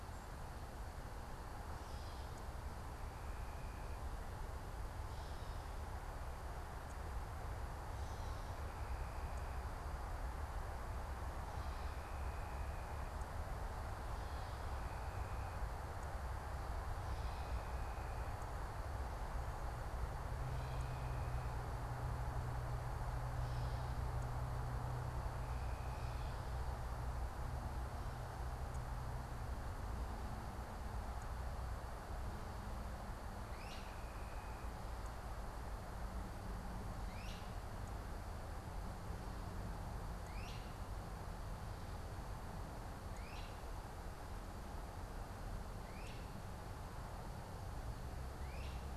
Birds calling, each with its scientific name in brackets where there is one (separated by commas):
Gray Catbird (Dumetella carolinensis), Great Crested Flycatcher (Myiarchus crinitus)